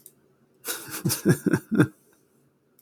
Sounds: Laughter